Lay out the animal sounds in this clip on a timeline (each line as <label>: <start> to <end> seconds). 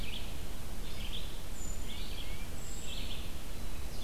Red-eyed Vireo (Vireo olivaceus): 0.0 to 4.0 seconds
Tufted Titmouse (Baeolophus bicolor): 1.8 to 2.5 seconds
Brown Creeper (Certhia americana): 2.5 to 3.1 seconds